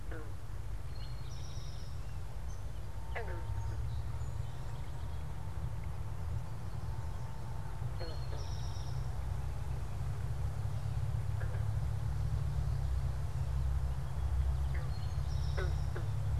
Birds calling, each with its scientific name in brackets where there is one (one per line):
Eastern Towhee (Pipilo erythrophthalmus)
Song Sparrow (Melospiza melodia)
unidentified bird